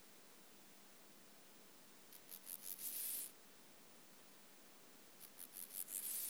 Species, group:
Chorthippus dorsatus, Orthoptera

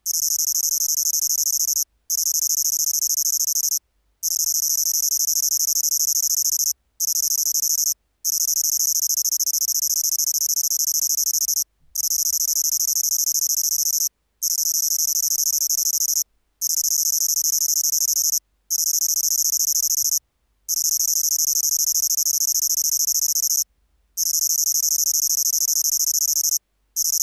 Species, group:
Svercus palmetorum, Orthoptera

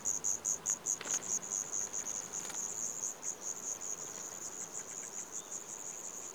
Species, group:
Eumodicogryllus theryi, Orthoptera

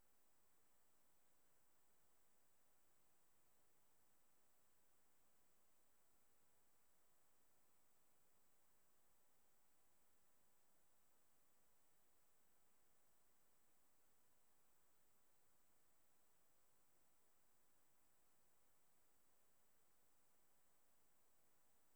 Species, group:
Tylopsis lilifolia, Orthoptera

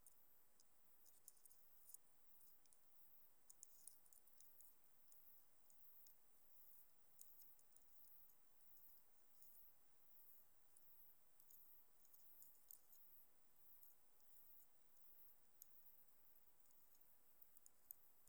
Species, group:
Stenobothrus lineatus, Orthoptera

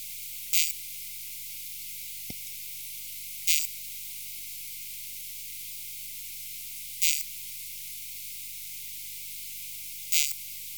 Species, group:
Poecilimon thessalicus, Orthoptera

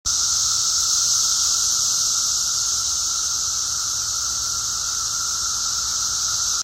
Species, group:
Magicicada cassini, Cicadidae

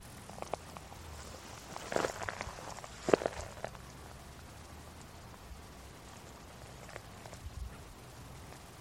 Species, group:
Tettigettalna josei, Cicadidae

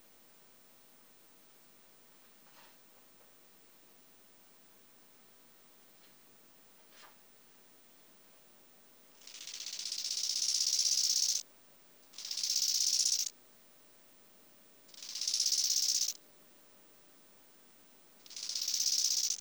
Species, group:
Chorthippus biguttulus, Orthoptera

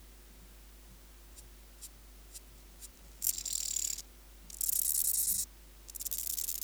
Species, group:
Chorthippus dorsatus, Orthoptera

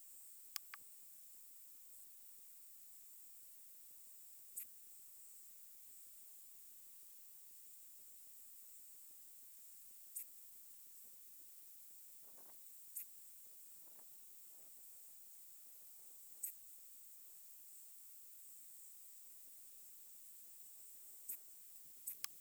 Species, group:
Steropleurus andalusius, Orthoptera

